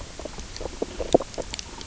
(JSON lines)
{"label": "biophony, knock croak", "recorder": "SoundTrap 300"}